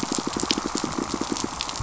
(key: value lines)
label: biophony, pulse
recorder: SoundTrap 500